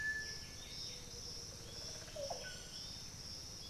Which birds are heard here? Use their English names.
Piratic Flycatcher, White-winged Becard, Olive Oropendola, unidentified bird